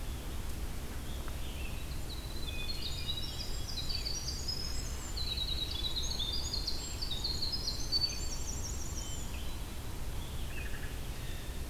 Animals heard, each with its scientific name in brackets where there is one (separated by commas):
Hermit Thrush (Catharus guttatus), Winter Wren (Troglodytes hiemalis), Wood Thrush (Hylocichla mustelina)